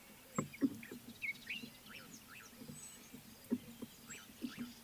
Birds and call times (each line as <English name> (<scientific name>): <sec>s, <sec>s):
Common Bulbul (Pycnonotus barbatus): 1.5s